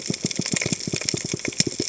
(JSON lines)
{"label": "biophony", "recorder": "HydroMoth"}